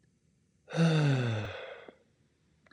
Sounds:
Sigh